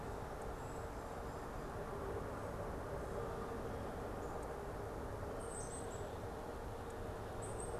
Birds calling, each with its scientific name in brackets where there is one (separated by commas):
Black-capped Chickadee (Poecile atricapillus)